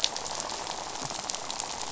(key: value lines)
label: biophony, rattle
recorder: SoundTrap 500